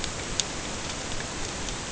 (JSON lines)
{"label": "ambient", "recorder": "HydroMoth"}